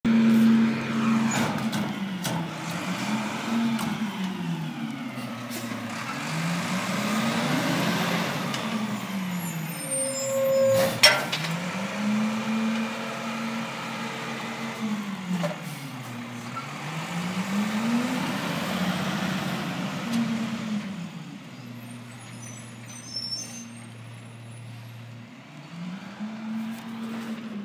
Is something going faster and then slower repeatedly?
yes